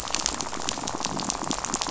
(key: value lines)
label: biophony, rattle
recorder: SoundTrap 500